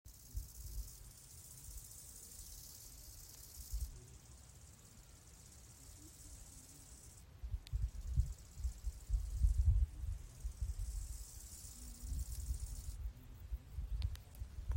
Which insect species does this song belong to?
Chorthippus biguttulus